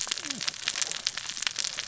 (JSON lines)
{"label": "biophony, cascading saw", "recorder": "SoundTrap 600 or HydroMoth"}